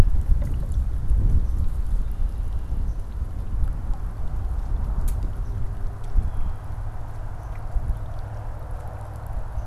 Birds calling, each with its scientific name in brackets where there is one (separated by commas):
Blue Jay (Cyanocitta cristata), Swamp Sparrow (Melospiza georgiana)